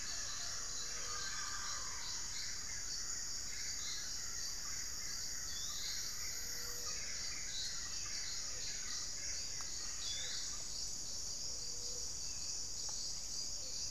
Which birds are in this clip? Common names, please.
Black-fronted Nunbird, unidentified bird